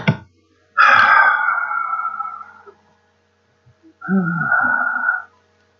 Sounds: Sigh